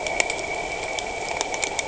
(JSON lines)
{"label": "anthrophony, boat engine", "recorder": "HydroMoth"}